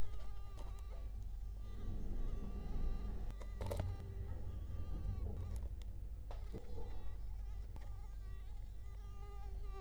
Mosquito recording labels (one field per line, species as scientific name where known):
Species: Culex quinquefasciatus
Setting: cup